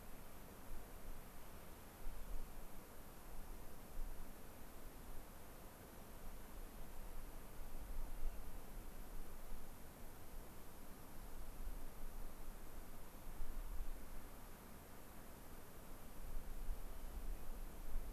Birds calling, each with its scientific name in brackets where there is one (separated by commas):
Hermit Thrush (Catharus guttatus)